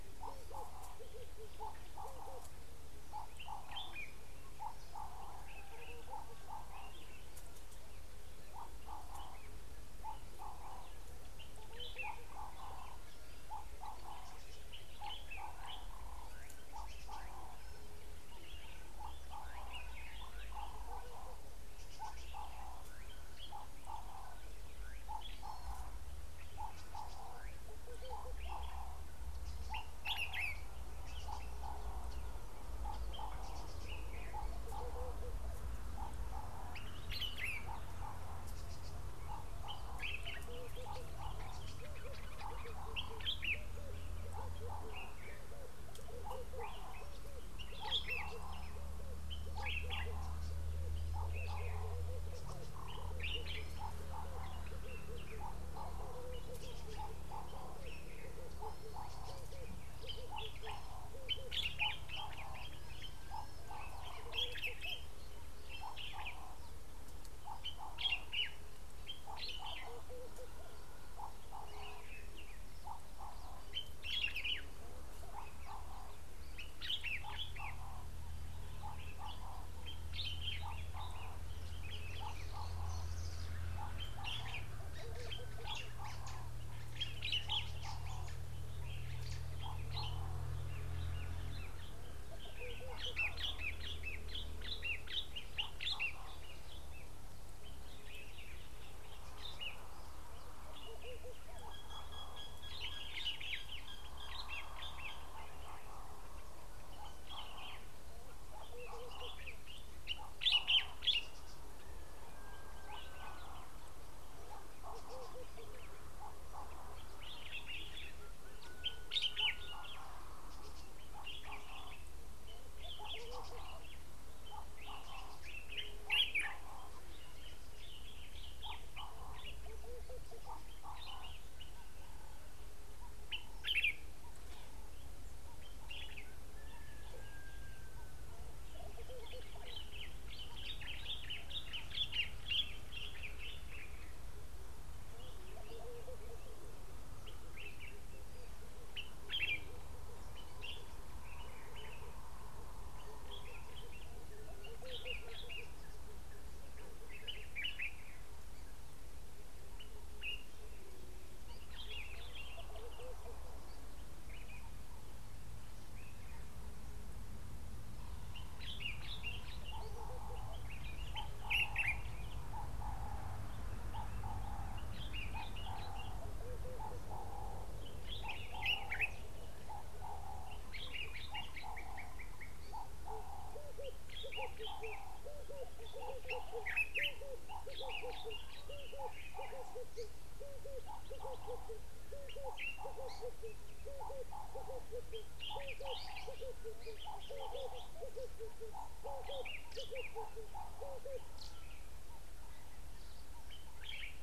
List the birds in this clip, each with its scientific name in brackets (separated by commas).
Laughing Dove (Streptopelia senegalensis), Common Bulbul (Pycnonotus barbatus), Red-eyed Dove (Streptopelia semitorquata), Ring-necked Dove (Streptopelia capicola)